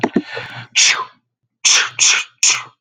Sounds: Sneeze